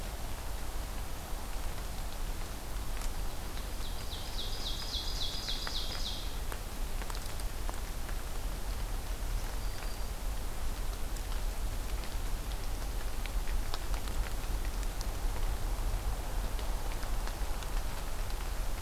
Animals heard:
Ovenbird (Seiurus aurocapilla), Black-throated Green Warbler (Setophaga virens)

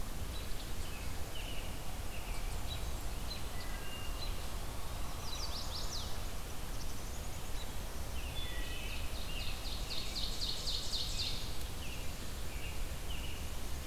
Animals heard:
Black-capped Chickadee (Poecile atricapillus), Chestnut-sided Warbler (Setophaga pensylvanica), Ovenbird (Seiurus aurocapilla), Eastern Wood-Pewee (Contopus virens), American Robin (Turdus migratorius), Wood Thrush (Hylocichla mustelina)

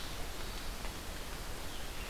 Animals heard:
Scarlet Tanager (Piranga olivacea), Hermit Thrush (Catharus guttatus)

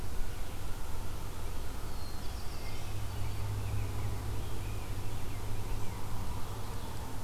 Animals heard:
Rose-breasted Grosbeak (Pheucticus ludovicianus), Black-throated Blue Warbler (Setophaga caerulescens), Wood Thrush (Hylocichla mustelina)

